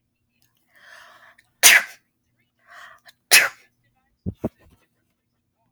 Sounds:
Sneeze